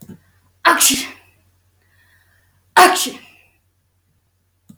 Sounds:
Sneeze